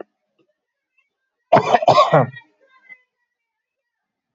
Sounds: Cough